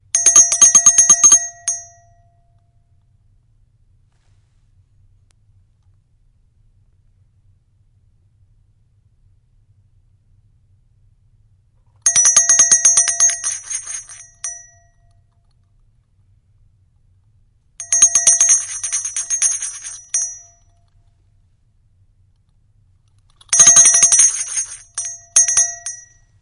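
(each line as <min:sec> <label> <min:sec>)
0:00.0 A bell rings loudly and repeatedly nearby. 0:02.6
0:00.0 Quiet indoor white noise. 0:26.4
0:11.7 A bell rings loudly and repeatedly nearby. 0:15.4
0:17.6 A bell rings loudly and repeatedly nearby. 0:21.2
0:23.2 A bell rings loudly and repeatedly nearby. 0:26.4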